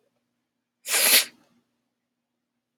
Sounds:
Sniff